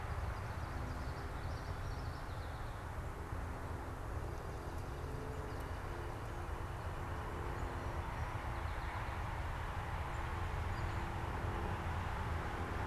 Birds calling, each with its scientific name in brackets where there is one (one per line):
Common Yellowthroat (Geothlypis trichas)
Northern Flicker (Colaptes auratus)